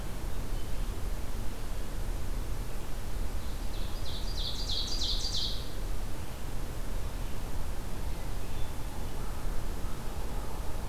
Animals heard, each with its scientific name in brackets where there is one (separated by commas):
Ovenbird (Seiurus aurocapilla)